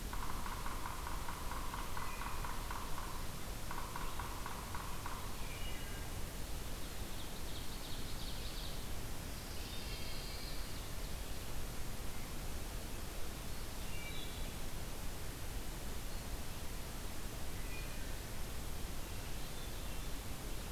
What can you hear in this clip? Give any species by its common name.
Yellow-bellied Sapsucker, Wood Thrush, Ovenbird, Pine Warbler